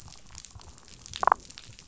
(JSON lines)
{"label": "biophony, damselfish", "recorder": "SoundTrap 500"}